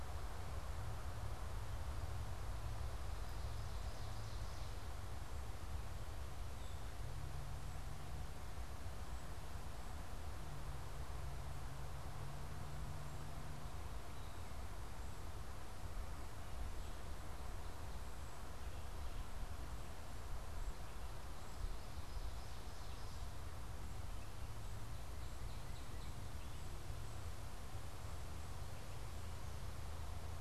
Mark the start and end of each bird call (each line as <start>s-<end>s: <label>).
2.9s-4.9s: Ovenbird (Seiurus aurocapilla)
21.2s-23.5s: Northern Cardinal (Cardinalis cardinalis)
24.9s-26.7s: Northern Cardinal (Cardinalis cardinalis)